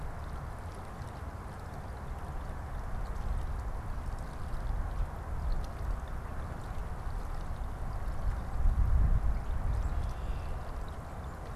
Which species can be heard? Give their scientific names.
Agelaius phoeniceus